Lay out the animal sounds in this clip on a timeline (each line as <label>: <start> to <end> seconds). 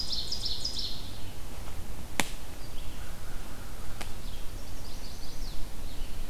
Ovenbird (Seiurus aurocapilla): 0.0 to 1.0 seconds
Red-eyed Vireo (Vireo olivaceus): 2.4 to 6.3 seconds
American Crow (Corvus brachyrhynchos): 3.0 to 4.0 seconds
Chestnut-sided Warbler (Setophaga pensylvanica): 4.5 to 5.6 seconds